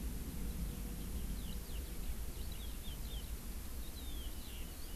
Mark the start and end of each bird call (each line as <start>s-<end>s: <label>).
0.9s-5.0s: Eurasian Skylark (Alauda arvensis)